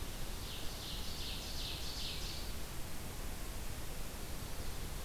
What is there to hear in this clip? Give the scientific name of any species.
Seiurus aurocapilla